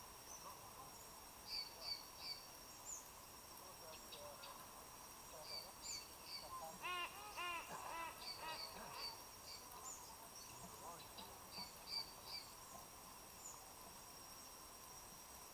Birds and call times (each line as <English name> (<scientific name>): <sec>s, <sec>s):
Black-collared Apalis (Oreolais pulcher): 1.8s, 11.8s
Silvery-cheeked Hornbill (Bycanistes brevis): 7.4s